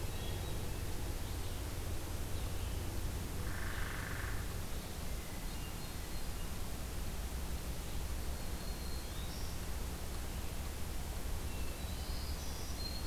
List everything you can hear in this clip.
Hermit Thrush, Red-eyed Vireo, Hairy Woodpecker, Black-throated Green Warbler